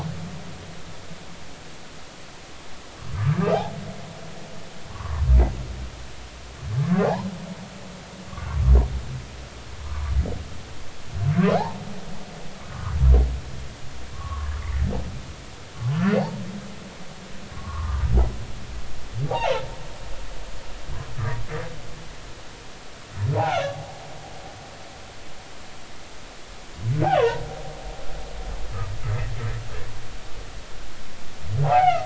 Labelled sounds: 3.1	3.7	humpback whale, 0.80 to 1.3 kHz
4.9	5.2	humpback whale, 0.90 to 1.3 kHz
7.0	7.3	humpback whale, 0.80 to 1.1 kHz
8.3	8.6	humpback whale, 0.93 to 1.2 kHz
9.9	10.1	humpback whale, 0.93 to 1.2 kHz
11.5	11.8	humpback whale, 0.80 to 1.1 kHz
14.1	14.5	humpback whale, 0.99 to 1.3 kHz
17.5	18.0	humpback whale, 0.86 to 1.3 kHz
19.3	19.6	humpback whale, 0.80 to 2.9 kHz
23.4	24.0	humpback whale, 0.80 to 3.6 kHz
27.1	27.4	humpback whale, 0.86 to 1.2 kHz
31.6	32.0	humpback whale, 0.80 to 3.0 kHz

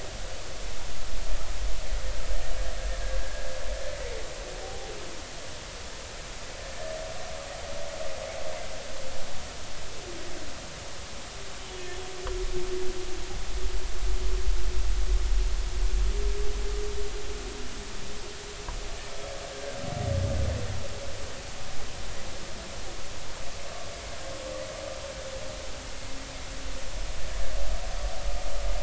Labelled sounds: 3.2	3.5	humpback whale, 1.6 to 1.8 kHz
11.6	11.9	humpback whale, 2.9 to 3.1 kHz

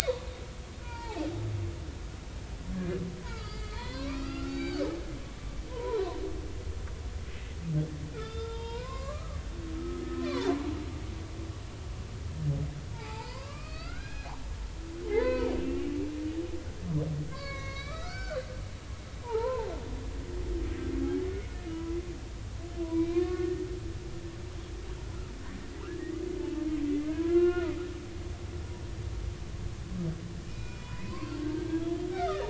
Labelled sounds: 0.0	0.3	humpback whale, 0.90 to 4.0 kHz
0.8	1.2	humpback whale, 0.80 to 4.8 kHz
3.2	4.9	humpback whale, 0.86 to 7.0 kHz
5.7	6.0	humpback whale, 0.86 to 1.1 kHz
8.1	10.5	humpback whale, 0.80 to 5.2 kHz
12.9	15.9	humpback whale, 0.80 to 5.1 kHz
17.3	18.4	humpback whale, 0.99 to 6.1 kHz
19.2	19.7	humpback whale, 0.80 to 1.4 kHz
21.7	22.0	humpback whale, 0.93 to 1.0 kHz
22.8	23.7	humpback whale, 0.93 to 2.6 kHz
26.0	27.8	humpback whale, 1.0 to 2.9 kHz
30.5	32.4	humpback whale, 0.86 to 4.8 kHz

